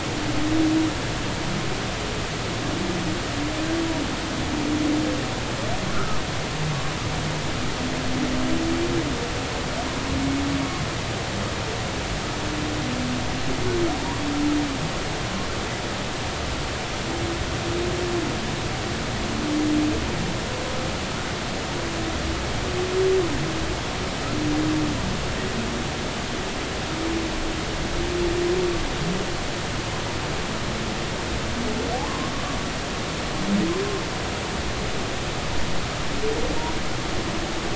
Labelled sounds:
5.9	6.2	humpback whale, 1.2 to 1.4 kHz
31.9	32.3	humpback whale, 0.80 to 1.2 kHz

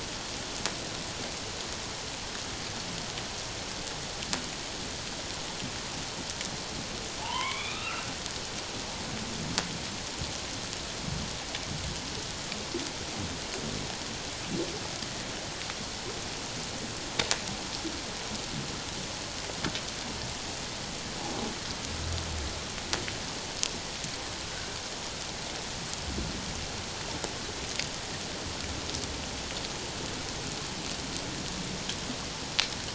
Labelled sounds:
7.2	8.0	humpback whale, 0.81 to 3.9 kHz

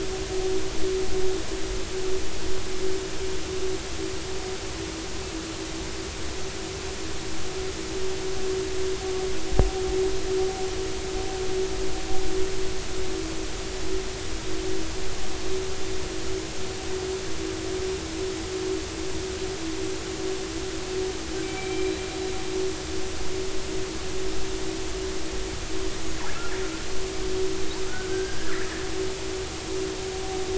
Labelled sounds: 21.4	21.9	killer whale, northern resident, 2.2 to 2.4 kHz
27.9	28.7	killer whale, northern resident, 1.3 to 2.0 kHz

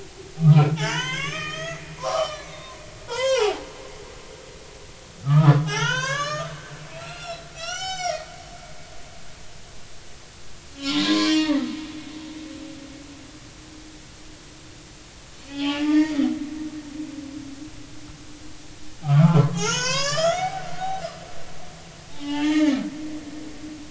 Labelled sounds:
0.4	2.7	humpback whale, 0.80 to 6.7 kHz
3.1	3.6	humpback whale, 0.80 to 5.4 kHz
5.2	8.3	humpback whale, 0.80 to 7.6 kHz
10.8	11.6	humpback whale, 0.86 to 4.4 kHz
15.5	16.2	humpback whale, 0.80 to 4.8 kHz
19.0	20.6	humpback whale, 0.80 to 7.3 kHz
22.1	22.8	humpback whale, 0.80 to 3.1 kHz

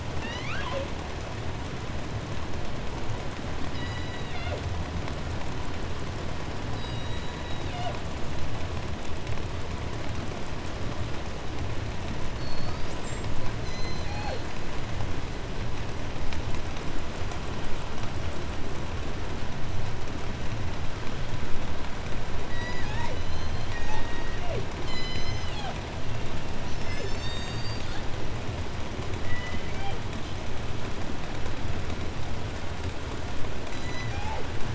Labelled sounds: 0.0	1.1	killer whale, southern resident, 0.30 to 6.8 kHz
3.6	4.8	killer whale, southern resident, J pod, call S01, 0.89 to 8.0 kHz
6.6	8.1	killer whale, southern resident, J pod, call S01, 0.30 to 8.0 kHz
12.0	13.4	killer whale, southern resident, J pod, call S42, 0.67 to 8.0 kHz
13.4	14.6	killer whale, southern resident, J pod, call S01, 0.24 to 8.0 kHz
22.4	23.3	killer whale, southern resident, J pod, call S01, 0.43 to 8.0 kHz
22.8	24.1	killer whale, 0.48 to 8.0 kHz
23.6	25.8	killer whale, southern resident, J pod, call S01, 0.15 to 8.0 kHz
25.7	26.8	killer whale, southern resident, 1.1 to 4.5 kHz
26.5	28.3	killer whale, southern resident, J pod, call S01, 0.13 to 8.0 kHz
29.1	30.2	killer whale, southern resident, J pod, call S01, 0.26 to 5.1 kHz
33.6	34.6	killer whale, southern resident, J pod, call S01, 0.22 to 8.0 kHz

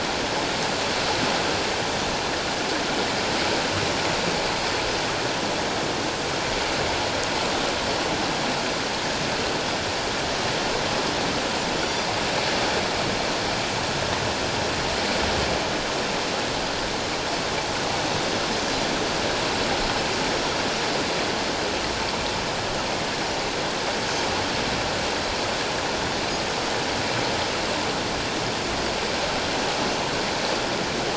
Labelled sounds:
11.8	12.1	Pacific white-sided dolphin, 3.3 to 4.8 kHz

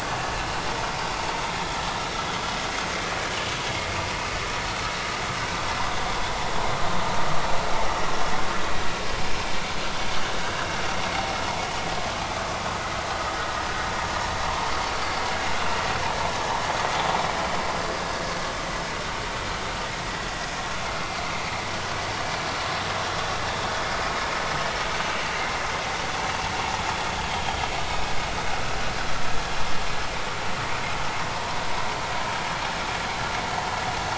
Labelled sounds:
2.7	3.5	vessel noise, 2.7 to 6.6 kHz
27.3	27.6	vessel noise, 3.1 to 3.3 kHz

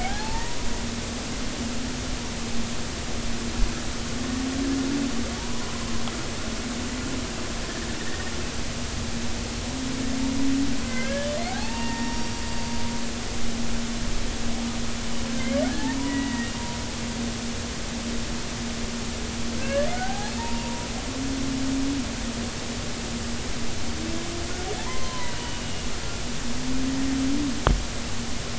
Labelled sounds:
0.0	0.6	humpback whale, 0.80 to 2.0 kHz
5.4	5.7	humpback whale, 0.83 to 1.1 kHz
10.8	12.4	humpback whale, 0.80 to 5.7 kHz
15.3	16.5	humpback whale, 0.93 to 3.0 kHz
19.6	20.9	humpback whale, 0.80 to 1.8 kHz
24.8	25.4	humpback whale, 0.80 to 1.1 kHz

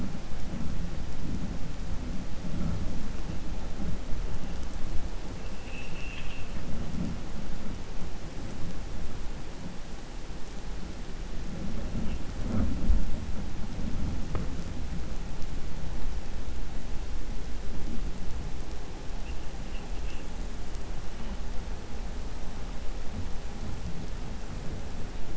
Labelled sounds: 5.5	6.5	vessel noise, 1.8 to 3.6 kHz

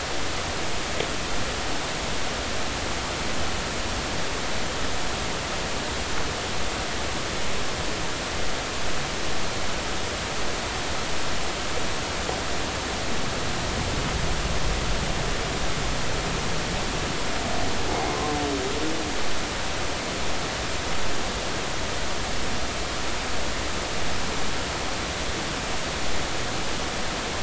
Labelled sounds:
18.1	18.4	humpback whale, 0.99 to 1.1 kHz

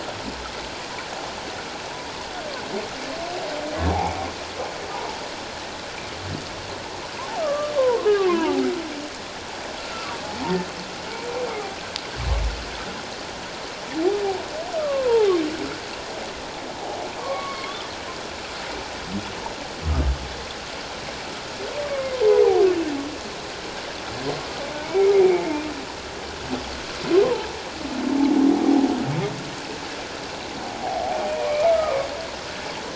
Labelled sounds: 4.9	5.2	humpback whale, 0.78 to 1.1 kHz
7.4	8.6	humpback whale, 0.78 to 1.3 kHz
14.7	15.3	humpback whale, 0.78 to 1.4 kHz
17.2	17.9	humpback whale, 0.91 to 2.3 kHz
21.8	22.2	humpback whale, 1.0 to 2.3 kHz
30.8	32.1	humpback whale, 0.78 to 1.3 kHz

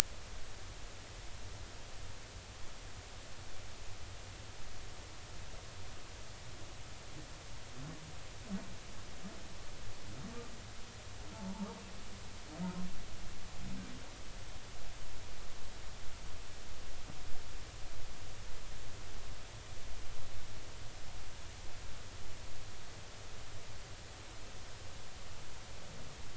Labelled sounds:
11.3	11.7	humpback whale, 0.80 to 0.99 kHz

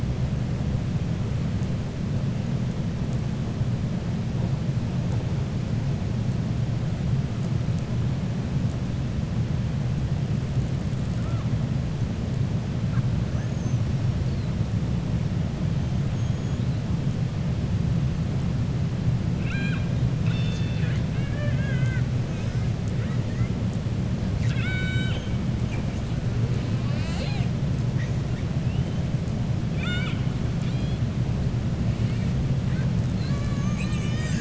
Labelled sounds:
13.3	13.8	killer whale, 5.6 to 7.1 kHz
16.1	16.6	killer whale, 6.4 to 6.9 kHz
19.3	19.9	killer whale, 1.2 to 4.1 kHz
21.1	22.1	killer whale, 0.58 to 3.3 kHz
24.3	25.3	killer whale, 1.4 to 7.7 kHz
29.6	30.2	killer whale, 1.3 to 4.6 kHz

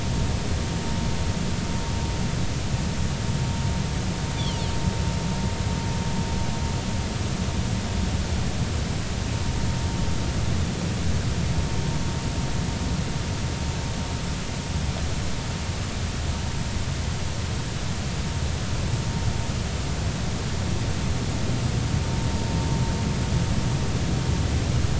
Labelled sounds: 4.4	4.6	Pacific white-sided dolphin, 2.7 to 3.6 kHz

